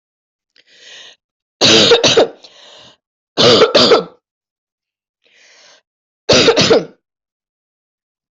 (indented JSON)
{
  "expert_labels": [
    {
      "quality": "ok",
      "cough_type": "unknown",
      "dyspnea": false,
      "wheezing": false,
      "stridor": false,
      "choking": false,
      "congestion": false,
      "nothing": true,
      "diagnosis": "healthy cough",
      "severity": "pseudocough/healthy cough"
    }
  ],
  "age": 42,
  "gender": "female",
  "respiratory_condition": false,
  "fever_muscle_pain": true,
  "status": "symptomatic"
}